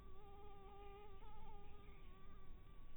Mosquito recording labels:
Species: mosquito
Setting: cup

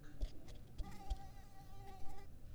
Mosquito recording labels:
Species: Mansonia africanus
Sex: female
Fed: unfed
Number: one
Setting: cup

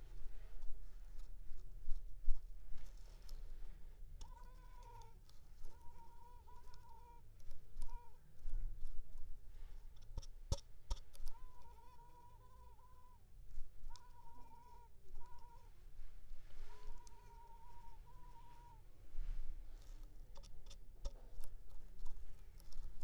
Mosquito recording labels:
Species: Culex pipiens complex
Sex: female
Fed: unfed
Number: one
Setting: cup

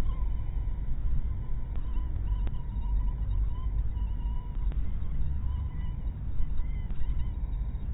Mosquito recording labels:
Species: mosquito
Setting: cup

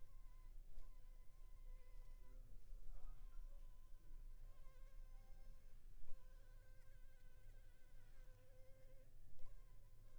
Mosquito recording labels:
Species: Anopheles funestus s.s.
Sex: female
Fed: unfed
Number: one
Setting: cup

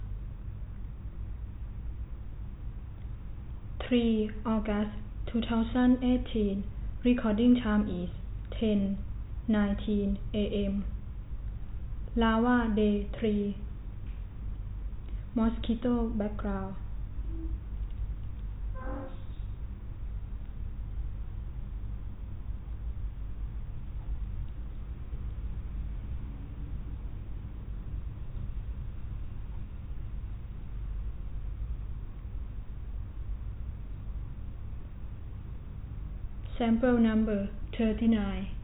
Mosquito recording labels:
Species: no mosquito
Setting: cup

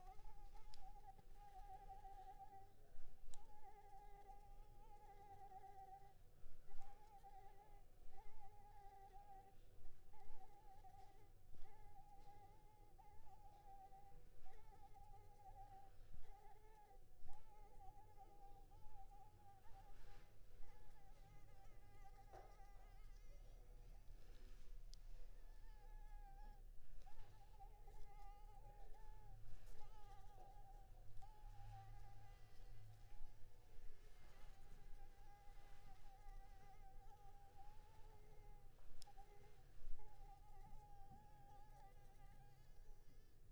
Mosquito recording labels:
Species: Anopheles maculipalpis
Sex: female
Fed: unfed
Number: one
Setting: cup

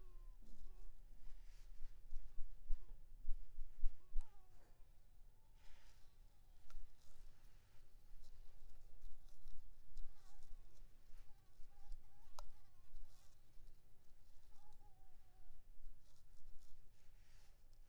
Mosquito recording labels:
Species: Anopheles maculipalpis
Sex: female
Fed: unfed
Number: one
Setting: cup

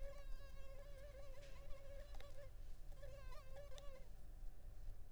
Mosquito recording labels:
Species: Culex pipiens complex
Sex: female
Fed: unfed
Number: one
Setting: cup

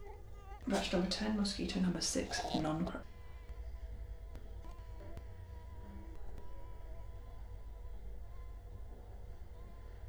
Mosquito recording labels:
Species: Culex quinquefasciatus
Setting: cup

